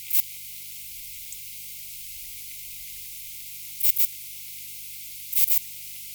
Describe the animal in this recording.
Ephippigerida areolaria, an orthopteran